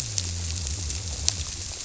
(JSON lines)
{"label": "biophony", "recorder": "SoundTrap 300"}